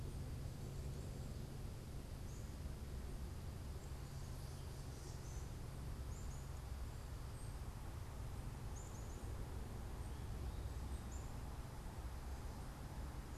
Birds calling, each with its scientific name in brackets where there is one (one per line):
Black-capped Chickadee (Poecile atricapillus)